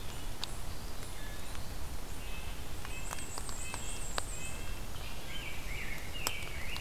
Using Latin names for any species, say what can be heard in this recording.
Contopus virens, Sitta canadensis, Mniotilta varia, Pheucticus ludovicianus